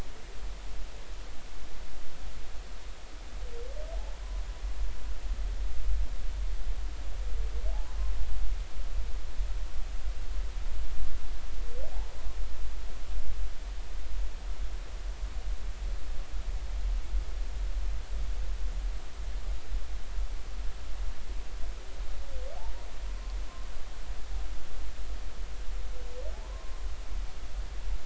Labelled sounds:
26.3	26.8	humpback whale, 0.80 to 1.1 kHz

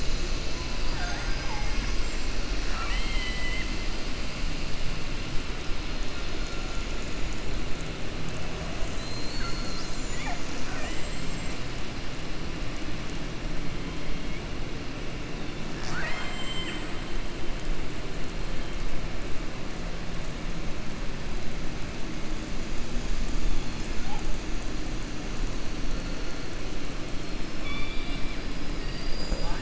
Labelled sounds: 0.7	1.9	killer whale, southern resident, 0.71 to 7.1 kHz
2.6	3.7	killer whale, southern resident, 0.78 to 4.6 kHz
10.6	11.2	killer whale, southern resident, 0.61 to 3.1 kHz
15.7	16.9	killer whale, southern resident, 0.71 to 7.8 kHz
27.2	28.4	killer whale, southern resident, 1.1 to 5.5 kHz

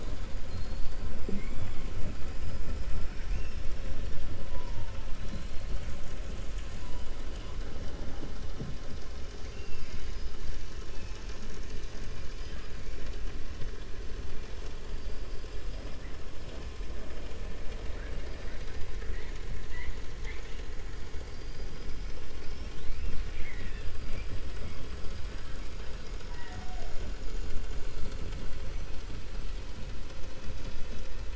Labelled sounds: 0.4	1.0	killer whale, 3.5 to 5.0 kHz
2.9	3.6	killer whale, 1.4 to 3.6 kHz
17.8	19.4	killer whale, 0.57 to 4.2 kHz
20.1	20.6	killer whale, 0.88 to 4.1 kHz
21.2	23.9	killer whale, 1.7 to 6.2 kHz

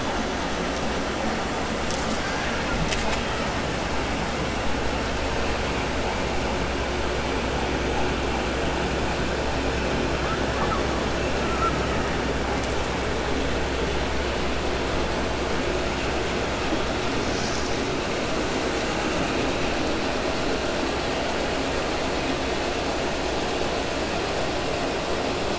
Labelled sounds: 11.4	12.1	killer whale, 1.1 to 2.3 kHz

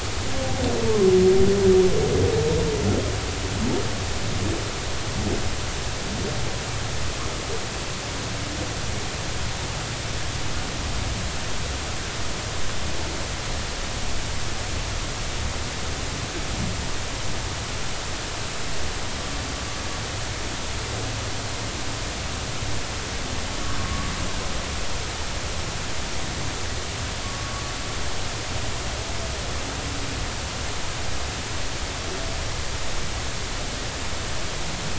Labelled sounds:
23.8	24.1	humpback whale, 1.1 to 1.2 kHz
27.2	27.6	humpback whale, 1.1 to 1.2 kHz

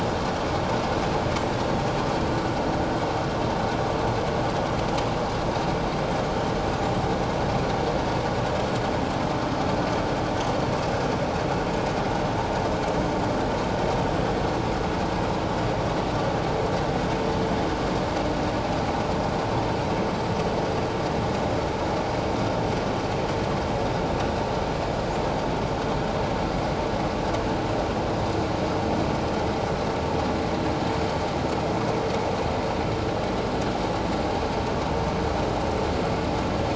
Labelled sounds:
20.1	20.4	vessel noise, 7.4 to 7.8 kHz

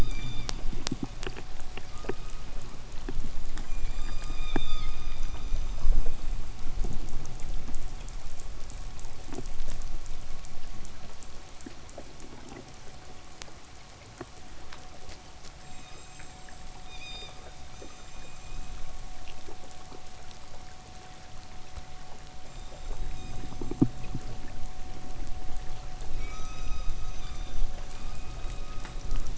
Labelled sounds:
1.6	2.9	killer whale, K pod, 0.91 to 5.5 kHz
3.1	6.7	killer whale, K pod, 0.96 to 8.0 kHz
15.5	19.0	killer whale, K pod, 1.9 to 8.0 kHz
22.2	24.3	killer whale, K pod, 2.2 to 8.0 kHz
26.0	29.3	killer whale, K pod, 0.96 to 8.0 kHz

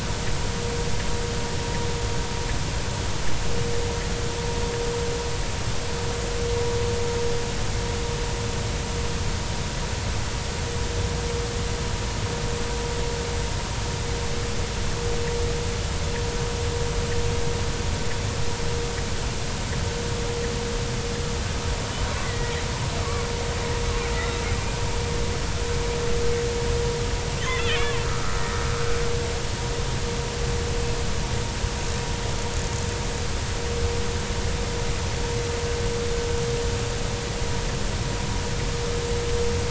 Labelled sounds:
22.2	22.6	killer whale, Bigg's (transient), 1.8 to 2.1 kHz
27.4	28.6	killer whale, Bigg's (transient), 1.1 to 3.6 kHz

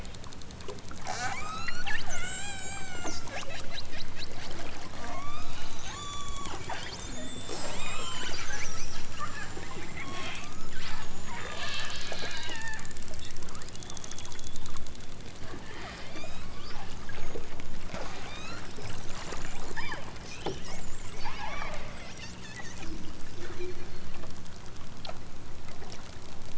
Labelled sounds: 1.0	3.2	killer whale, southern Alaska resident, 0.41 to 8.0 kHz
4.9	5.5	killer whale, southern Alaska resident, 0.32 to 8.0 kHz
5.8	8.3	killer whale, southern Alaska resident, 0.23 to 8.0 kHz
10.0	10.8	killer whale, southern Alaska resident, 0.46 to 8.0 kHz
11.2	12.0	killer whale, southern Alaska resident, 0.28 to 5.4 kHz
12.4	12.8	killer whale, southern Alaska resident, 0.51 to 6.7 kHz
16.1	16.6	killer whale, southern Alaska resident, 0.55 to 8.0 kHz
18.2	18.7	killer whale, southern Alaska resident, 0.64 to 7.5 kHz
19.7	20.0	killer whale, southern Alaska resident, 0.55 to 5.9 kHz
21.1	21.8	killer whale, southern Alaska resident, 0.51 to 6.4 kHz

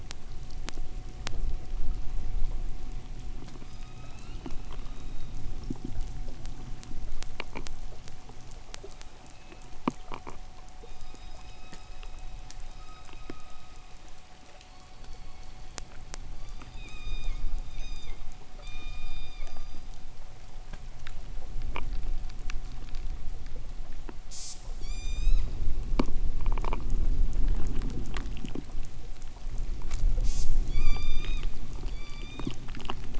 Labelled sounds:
3.6	5.8	killer whale, K pod, 0.84 to 6.5 kHz
9.0	9.8	killer whale, K pod, call S16, 2.2 to 5.5 kHz
10.7	20.0	killer whale, K pod, 0.87 to 8.0 kHz
24.1	24.7	killer whale, K pod, call S05, 1.8 to 8.0 kHz
24.7	25.6	killer whale, K pod, 0.93 to 8.0 kHz
30.1	30.6	killer whale, K pod, call S05, 1.8 to 8.0 kHz
30.6	32.6	killer whale, K pod, 0.85 to 8.0 kHz

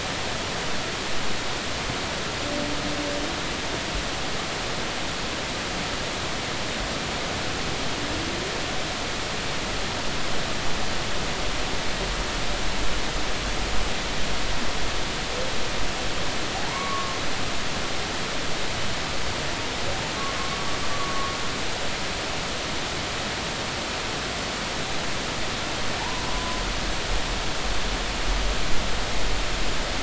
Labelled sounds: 16.5	17.2	humpback whale, 0.80 to 1.2 kHz
20.9	21.3	humpback whale, 1.1 to 1.2 kHz
26.0	26.6	humpback whale, 0.80 to 1.1 kHz

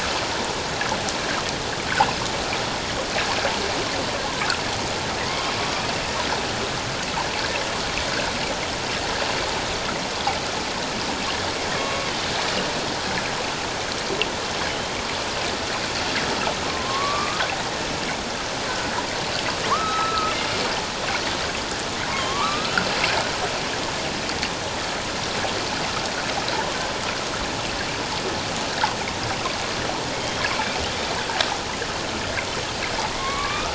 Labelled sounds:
11.8	12.1	killer whale, northern resident, A clan, AB subclan, 1.1 to 1.2 kHz
16.6	17.4	killer whale, northern resident, A clan, AB subclan, 0.97 to 1.3 kHz
19.7	20.3	killer whale, northern resident, A clan, AB subclan, 0.91 to 4.0 kHz
22.1	22.9	killer whale, northern resident, A clan, AB subclan, 0.81 to 2.8 kHz
30.2	30.5	killer whale, northern resident, A clan, AB subclan, 3.1 to 3.3 kHz
33.1	33.7	killer whale, northern resident, A clan, AB subclan, 1.0 to 2.6 kHz

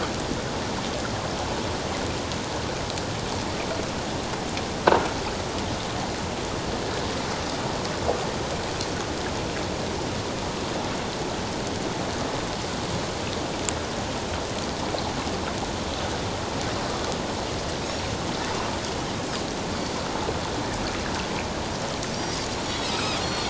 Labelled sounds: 22.1	23.4	Pacific white-sided dolphin, 2.3 to 5.8 kHz

